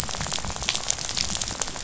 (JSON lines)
{"label": "biophony, rattle", "recorder": "SoundTrap 500"}